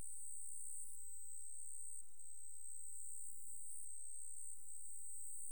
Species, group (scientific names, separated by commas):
Pteronemobius heydenii, Orthoptera